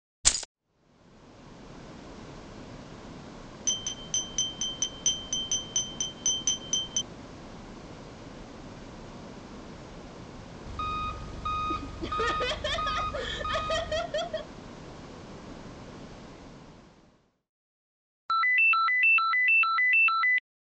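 At 0.24 seconds, keys jangle. Next, at 0.51 seconds, the quiet sound of the ocean fades in, and it fades out at 17.54 seconds. Over it, at 3.65 seconds, you can hear glass. After that, at 10.65 seconds, an engine is audible. While that goes on, at 11.68 seconds, someone laughs. Finally, at 18.28 seconds, there is a ringtone.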